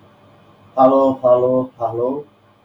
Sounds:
Sniff